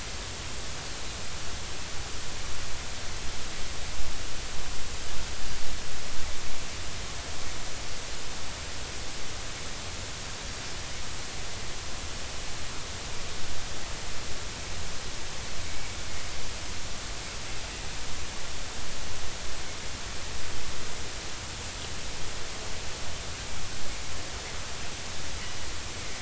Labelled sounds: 15.7	15.9	Pacific white-sided dolphin, 2.2 to 2.3 kHz

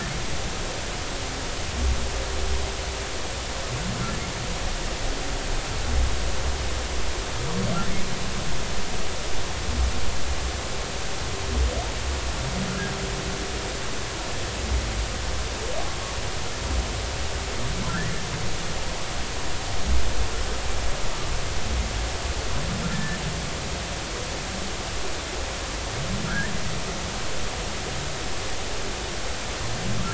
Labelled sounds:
17.9	18.1	humpback whale, 1.3 to 2.0 kHz
22.9	23.2	humpback whale, 1.7 to 1.8 kHz
26.2	26.5	humpback whale, 1.2 to 1.9 kHz

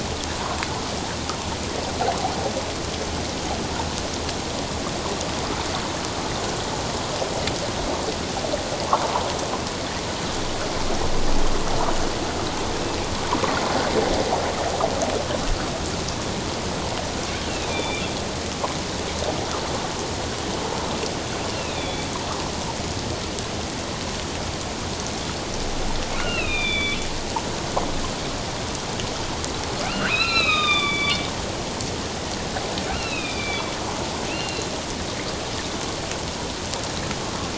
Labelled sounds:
17.4	18.1	killer whale, northern resident, A clan, AA subclan, A05 pod, 2.3 to 3.6 kHz
21.5	22.1	killer whale, northern resident, A clan, AA subclan, A05 pod, 2.2 to 3.8 kHz
26.2	27.0	killer whale, northern resident, A clan, AA subclan, A05 pod, 1.3 to 4.2 kHz
29.8	31.2	killer whale, northern resident, A clan, AA subclan, A05 pod, 1.1 to 5.2 kHz
32.9	33.7	killer whale, northern resident, A clan, AA subclan, A05 pod, 1.2 to 4.2 kHz
34.3	34.7	killer whale, northern resident, A clan, AA subclan, A05 pod, 2.5 to 4.3 kHz

